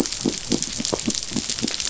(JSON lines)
{"label": "biophony", "recorder": "SoundTrap 500"}